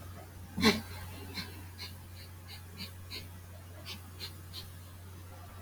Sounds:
Sniff